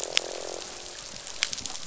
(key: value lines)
label: biophony, croak
recorder: SoundTrap 500